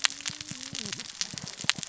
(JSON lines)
{"label": "biophony, cascading saw", "recorder": "SoundTrap 600 or HydroMoth"}